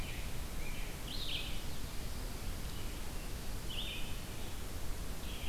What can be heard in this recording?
American Robin, Red-eyed Vireo